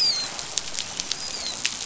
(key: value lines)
label: biophony, dolphin
recorder: SoundTrap 500